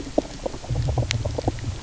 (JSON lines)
{"label": "biophony", "recorder": "SoundTrap 300"}